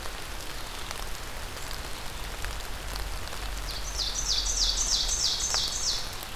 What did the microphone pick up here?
Ovenbird